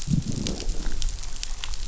{"label": "biophony, growl", "recorder": "SoundTrap 500"}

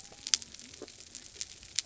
{"label": "biophony", "recorder": "SoundTrap 300"}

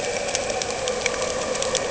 {"label": "anthrophony, boat engine", "recorder": "HydroMoth"}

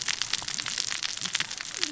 {"label": "biophony, cascading saw", "recorder": "SoundTrap 600 or HydroMoth"}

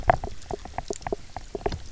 {"label": "biophony, knock croak", "recorder": "SoundTrap 300"}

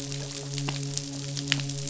{"label": "biophony, midshipman", "recorder": "SoundTrap 500"}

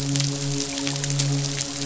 {"label": "biophony, midshipman", "recorder": "SoundTrap 500"}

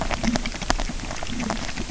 {"label": "biophony, grazing", "recorder": "SoundTrap 300"}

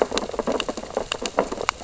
{"label": "biophony, sea urchins (Echinidae)", "recorder": "SoundTrap 600 or HydroMoth"}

